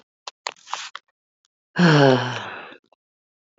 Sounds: Sigh